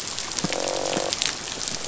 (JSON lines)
{"label": "biophony, croak", "recorder": "SoundTrap 500"}